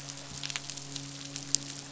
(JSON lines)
{"label": "biophony, midshipman", "recorder": "SoundTrap 500"}